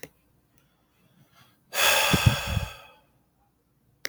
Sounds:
Sigh